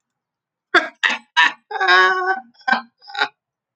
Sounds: Laughter